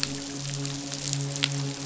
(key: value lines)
label: biophony, midshipman
recorder: SoundTrap 500